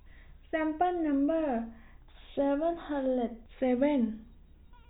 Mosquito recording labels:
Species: no mosquito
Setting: cup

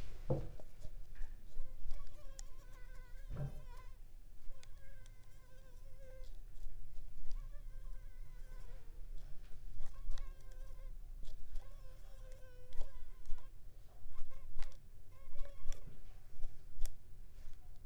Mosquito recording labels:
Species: Culex pipiens complex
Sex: female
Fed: unfed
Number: one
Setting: cup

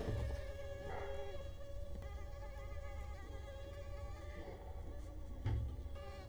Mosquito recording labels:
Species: Culex quinquefasciatus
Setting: cup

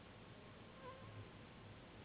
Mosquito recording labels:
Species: Anopheles gambiae s.s.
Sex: female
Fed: unfed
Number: one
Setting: insect culture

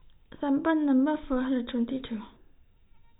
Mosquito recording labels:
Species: no mosquito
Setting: cup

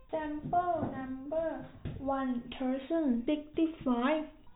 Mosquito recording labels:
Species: no mosquito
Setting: cup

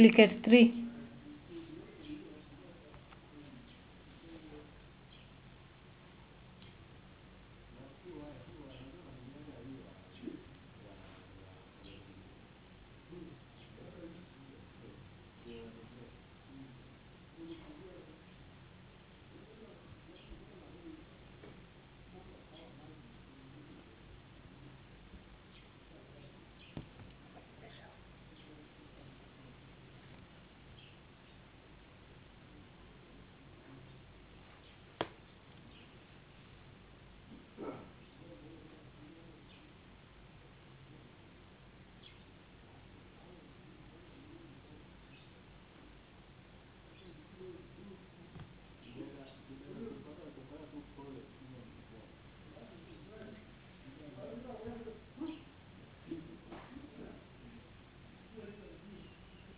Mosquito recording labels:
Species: no mosquito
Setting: insect culture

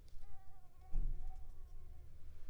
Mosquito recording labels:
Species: Anopheles coustani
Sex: female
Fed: unfed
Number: one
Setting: cup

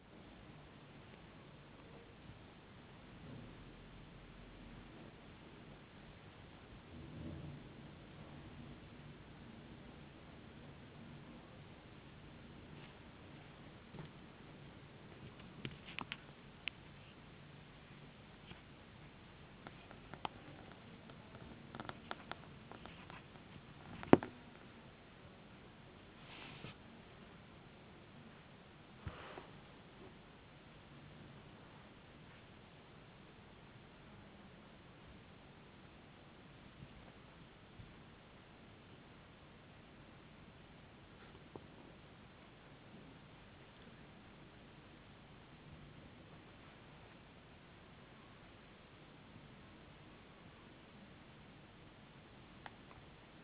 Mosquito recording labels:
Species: no mosquito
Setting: insect culture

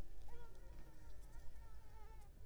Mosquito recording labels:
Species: Mansonia uniformis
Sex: female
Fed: unfed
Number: one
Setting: cup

